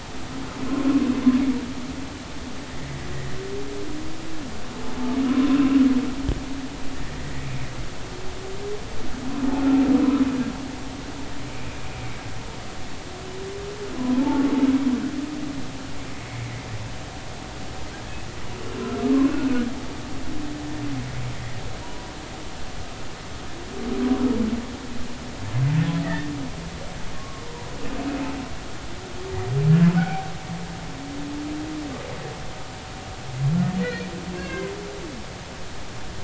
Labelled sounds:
2.7	3.1	humpback whale, 1.8 to 2.1 kHz
7.2	7.5	humpback whale, 1.8 to 2.1 kHz
14.0	14.2	humpback whale, 0.96 to 1.1 kHz
18.6	18.9	humpback whale, 2.7 to 2.9 kHz
21.8	22.1	humpback whale, 0.90 to 0.99 kHz
26.0	26.3	humpback whale, 1.7 to 2.0 kHz
27.4	27.8	humpback whale, 0.83 to 1.0 kHz
28.1	28.4	humpback whale, 1.0 to 1.2 kHz
30.0	30.3	humpback whale, 0.80 to 2.5 kHz
33.8	34.7	humpback whale, 1.5 to 2.8 kHz

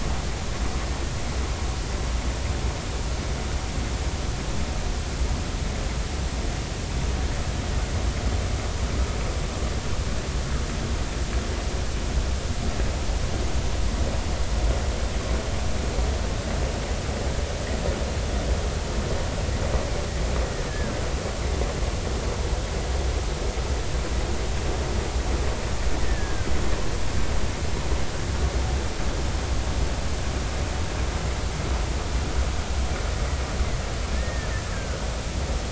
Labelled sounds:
20.7	21.0	killer whale, Bigg's (transient), 1.5 to 1.8 kHz
26.0	26.5	killer whale, Bigg's (transient), 1.5 to 2.0 kHz
34.1	35.1	killer whale, Bigg's (transient), 1.4 to 1.9 kHz

